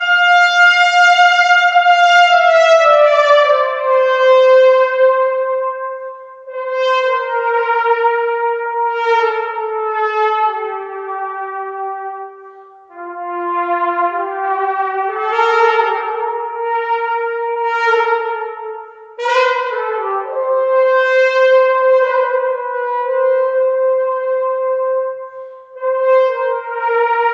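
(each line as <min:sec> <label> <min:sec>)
0:00.0 A person is playing a cornet. 0:27.3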